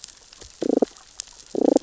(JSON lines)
{"label": "biophony, damselfish", "recorder": "SoundTrap 600 or HydroMoth"}